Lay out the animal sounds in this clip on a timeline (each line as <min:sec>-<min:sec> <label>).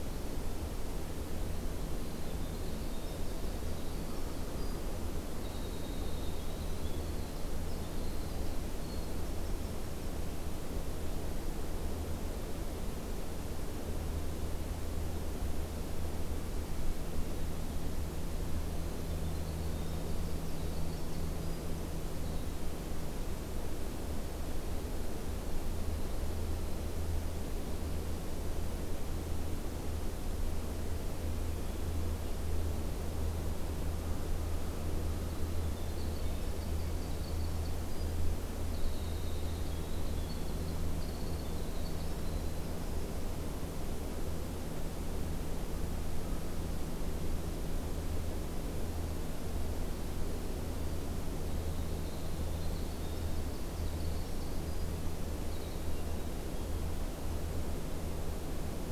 0:01.5-0:10.3 Winter Wren (Troglodytes hiemalis)
0:18.7-0:22.8 Winter Wren (Troglodytes hiemalis)
0:35.1-0:43.3 Winter Wren (Troglodytes hiemalis)
0:49.4-0:57.1 Winter Wren (Troglodytes hiemalis)
0:55.9-0:56.9 Hermit Thrush (Catharus guttatus)